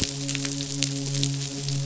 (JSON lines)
{"label": "biophony, midshipman", "recorder": "SoundTrap 500"}